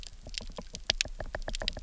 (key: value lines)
label: biophony, knock
recorder: SoundTrap 300